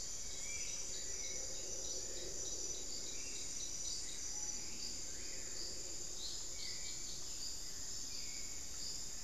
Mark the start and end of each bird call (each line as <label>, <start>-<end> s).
Spot-winged Antshrike (Pygiptila stellaris), 0.0-1.1 s
Hauxwell's Thrush (Turdus hauxwelli), 0.0-9.2 s
Screaming Piha (Lipaugus vociferans), 4.3-4.6 s